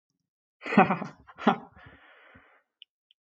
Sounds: Laughter